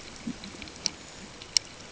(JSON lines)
{"label": "ambient", "recorder": "HydroMoth"}